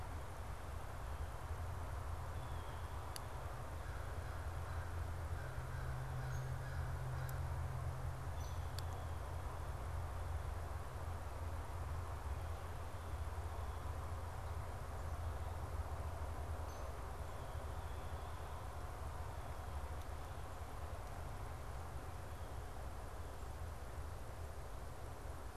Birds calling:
American Crow (Corvus brachyrhynchos)
Blue Jay (Cyanocitta cristata)
Downy Woodpecker (Dryobates pubescens)

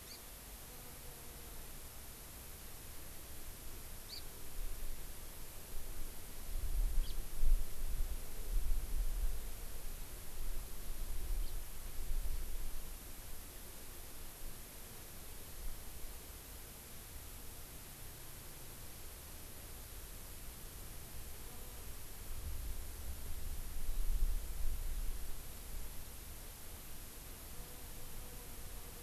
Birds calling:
Hawaii Amakihi (Chlorodrepanis virens)

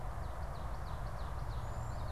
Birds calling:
Cedar Waxwing (Bombycilla cedrorum)
Ovenbird (Seiurus aurocapilla)

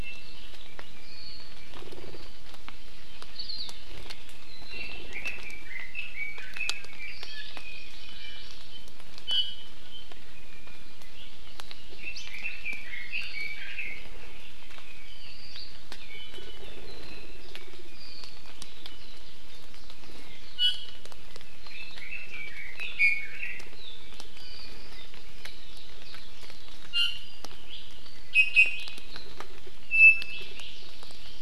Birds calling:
Hawaii Amakihi (Chlorodrepanis virens)
Iiwi (Drepanis coccinea)
Hawaii Akepa (Loxops coccineus)
Apapane (Himatione sanguinea)
Red-billed Leiothrix (Leiothrix lutea)

